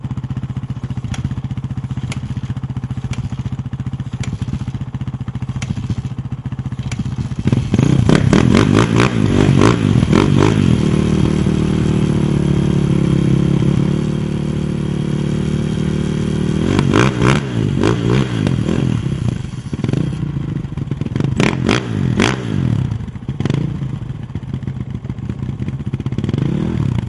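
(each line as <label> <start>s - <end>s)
A bike engine is idling repeatedly. 0.0s - 7.4s
A bike engine is revving steadily. 7.5s - 10.7s
A bike drives by repeatedly nearby. 10.8s - 16.6s
A bike engine revs repeatedly. 16.7s - 19.7s
The engine of a bike is idling. 19.7s - 21.1s
A bike engine revs repeatedly. 21.1s - 22.6s
A bike engine idles repeatedly. 22.7s - 26.1s
A bike engine is revving. 26.2s - 27.1s
A bike is driving away. 26.2s - 27.1s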